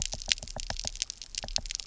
{"label": "biophony, knock", "recorder": "SoundTrap 300"}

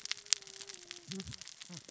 {"label": "biophony, cascading saw", "recorder": "SoundTrap 600 or HydroMoth"}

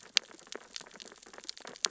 {"label": "biophony, sea urchins (Echinidae)", "recorder": "SoundTrap 600 or HydroMoth"}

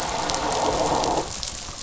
{"label": "anthrophony, boat engine", "recorder": "SoundTrap 500"}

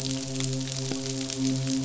{"label": "biophony, midshipman", "recorder": "SoundTrap 500"}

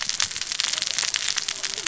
{"label": "biophony, cascading saw", "recorder": "SoundTrap 600 or HydroMoth"}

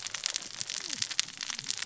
{"label": "biophony, cascading saw", "recorder": "SoundTrap 600 or HydroMoth"}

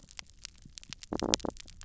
{"label": "biophony", "recorder": "SoundTrap 300"}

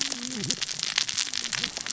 {"label": "biophony, cascading saw", "recorder": "SoundTrap 600 or HydroMoth"}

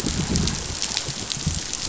{"label": "biophony, growl", "recorder": "SoundTrap 500"}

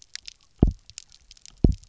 {"label": "biophony, double pulse", "recorder": "SoundTrap 300"}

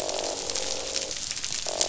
{"label": "biophony, croak", "recorder": "SoundTrap 500"}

